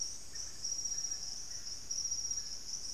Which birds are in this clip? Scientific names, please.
Psarocolius angustifrons